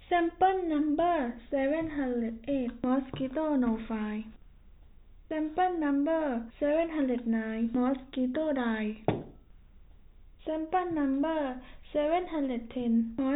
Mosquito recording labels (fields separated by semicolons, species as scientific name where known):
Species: no mosquito; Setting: cup